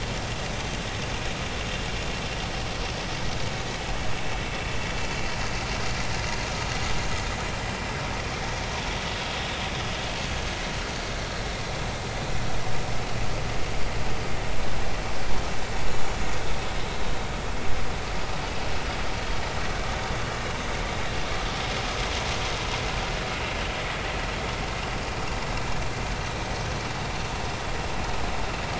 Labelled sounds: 14.0	14.3	vessel noise, 4.7 to 4.8 kHz

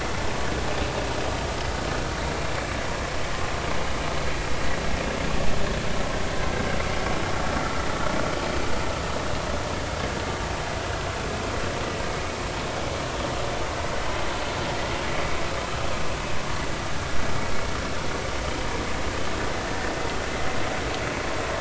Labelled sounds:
7.6	7.8	vessel noise, 1.2 to 1.5 kHz

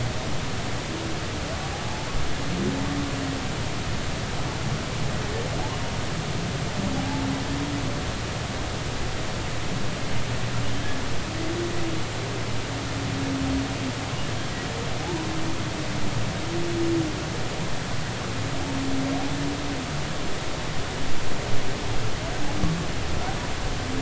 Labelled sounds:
7.0	7.3	humpback whale, 0.80 to 0.93 kHz
15.0	15.3	humpback whale, 0.80 to 1.0 kHz

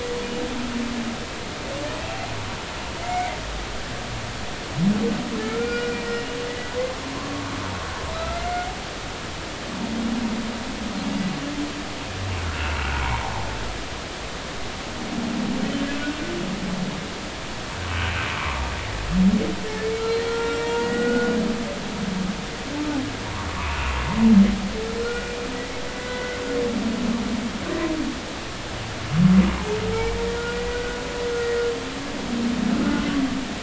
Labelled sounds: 3.0	3.3	humpback whale, 2.0 to 2.3 kHz
5.4	6.3	humpback whale, 1.3 to 2.5 kHz
7.1	8.7	humpback whale, 0.99 to 2.2 kHz
9.1	9.4	humpback whale, 1.2 to 1.4 kHz
12.4	13.0	humpback whale, 1.2 to 2.8 kHz
18.4	18.6	humpback whale, 0.90 to 1.2 kHz
20.0	21.4	humpback whale, 0.90 to 4.2 kHz
23.5	23.8	humpback whale, 0.90 to 1.3 kHz
25.0	26.4	humpback whale, 1.3 to 2.1 kHz
29.9	31.0	humpback whale, 0.80 to 2.3 kHz

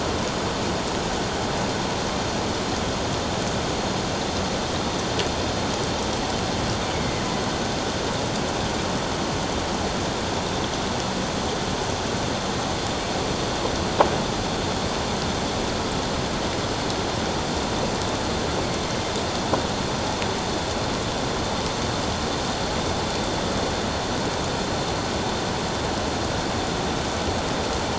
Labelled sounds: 6.9	7.2	killer whale, northern resident, A clan, 2.0 to 2.3 kHz

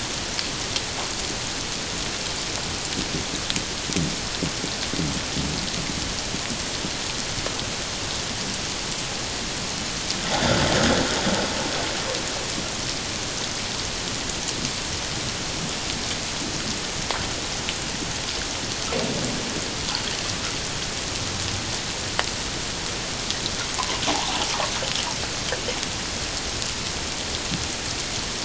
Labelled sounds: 23.8	24.3	water noise, 0.78 to 1.2 kHz

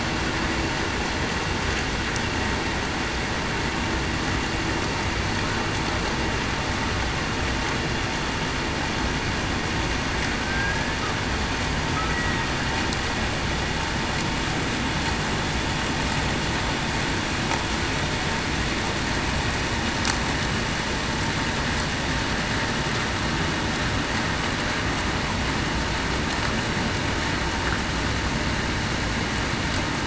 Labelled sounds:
10.4	11.0	killer whale, Bigg's (transient), 1.5 to 1.8 kHz

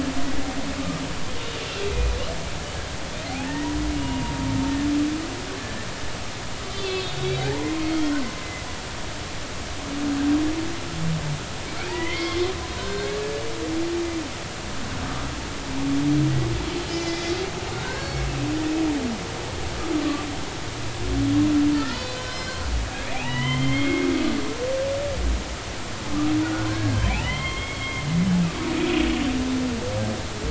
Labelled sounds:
0.8	1.0	humpback whale, 1.15 to 1.25 kHz
1.9	2.2	humpback whale, 2.4 to 2.5 kHz
3.2	4.3	humpback whale, 0.80 to 2.9 kHz
6.7	8.2	humpback whale, 0.80 to 4.4 kHz
11.9	12.4	humpback whale, 0.83 to 2.2 kHz
12.8	13.1	humpback whale, 1.4 to 1.7 kHz
16.8	17.3	humpback whale, 2.0 to 5.5 kHz
17.8	18.2	humpback whale, 1.4 to 4.5 kHz
21.7	22.6	humpback whale, 1.2 to 4.6 kHz
23.1	24.1	humpback whale, 0.80 to 3.4 kHz
26.7	28.1	humpback whale, 0.93 to 3.3 kHz
28.7	29.0	humpback whale, 2.3 to 2.6 kHz

